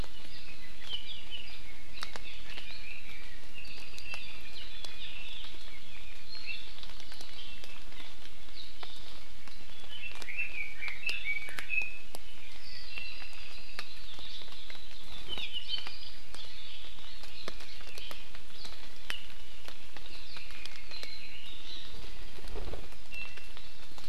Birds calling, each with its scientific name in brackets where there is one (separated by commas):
Red-billed Leiothrix (Leiothrix lutea), Iiwi (Drepanis coccinea), Hawaii Akepa (Loxops coccineus), Apapane (Himatione sanguinea)